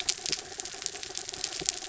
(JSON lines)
{"label": "anthrophony, mechanical", "recorder": "SoundTrap 300"}